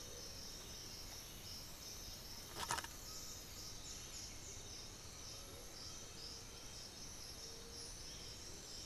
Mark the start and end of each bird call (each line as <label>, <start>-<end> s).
Amazonian Motmot (Momotus momota), 0.0-8.9 s
Undulated Tinamou (Crypturellus undulatus), 2.2-6.9 s
White-winged Becard (Pachyramphus polychopterus), 3.9-8.9 s